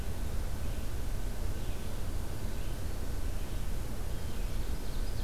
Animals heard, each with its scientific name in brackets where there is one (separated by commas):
Red-eyed Vireo (Vireo olivaceus)